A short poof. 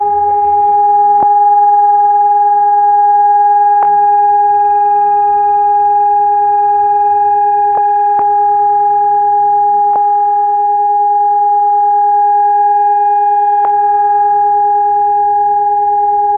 1.2s 1.3s, 3.8s 3.9s, 7.7s 8.2s, 9.9s 10.0s, 13.6s 13.7s

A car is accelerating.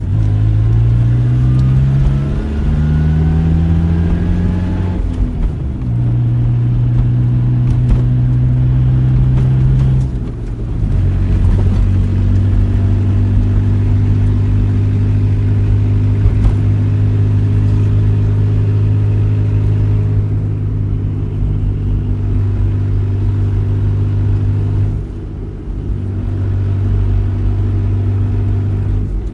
0.0s 6.1s

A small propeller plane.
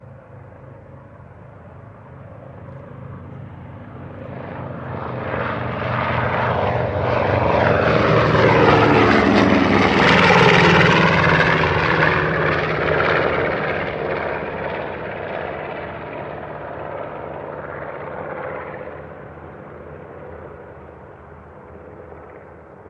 4.2s 15.3s

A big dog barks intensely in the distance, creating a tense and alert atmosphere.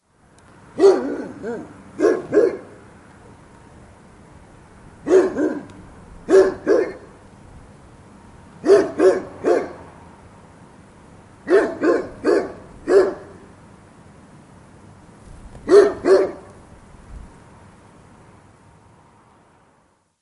0.7s 2.7s, 5.0s 6.9s, 8.7s 9.7s, 11.5s 13.3s, 15.4s 16.5s

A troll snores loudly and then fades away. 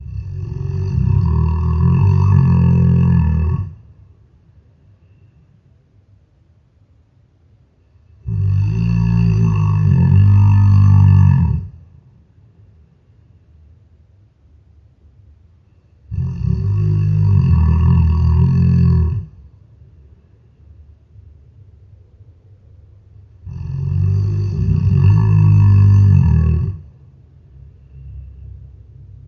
0.1s 3.8s, 8.2s 11.7s, 16.1s 19.3s, 23.5s 26.9s

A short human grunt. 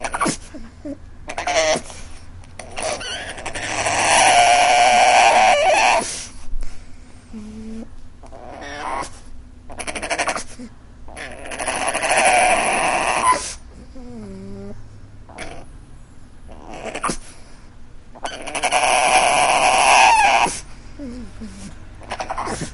7.3s 8.3s

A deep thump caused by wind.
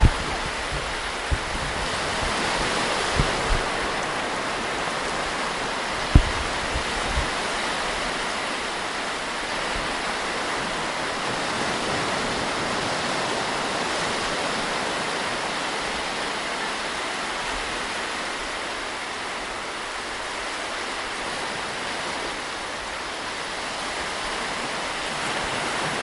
0.0s 0.6s, 1.2s 1.5s, 2.9s 3.8s, 6.0s 6.3s

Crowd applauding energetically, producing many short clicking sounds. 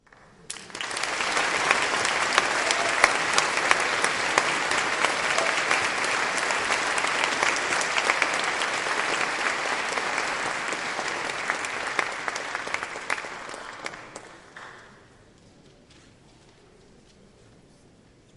0.5s 15.0s

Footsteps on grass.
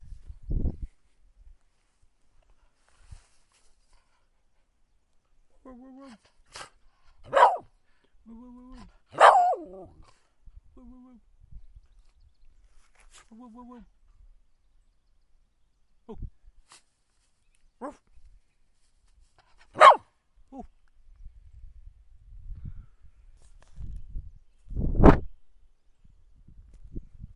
2.8s 4.6s, 23.4s 24.5s

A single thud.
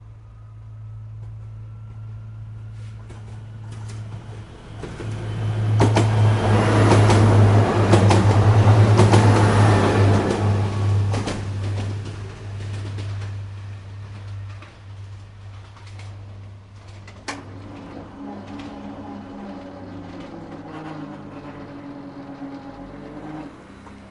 17.0s 17.6s

